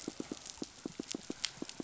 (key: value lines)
label: biophony, pulse
recorder: SoundTrap 500